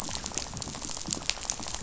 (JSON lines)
{"label": "biophony, rattle", "recorder": "SoundTrap 500"}